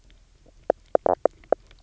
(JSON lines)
{"label": "biophony, knock croak", "recorder": "SoundTrap 300"}